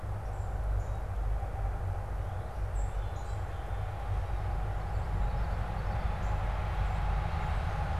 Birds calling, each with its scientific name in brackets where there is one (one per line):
Common Yellowthroat (Geothlypis trichas)
Song Sparrow (Melospiza melodia)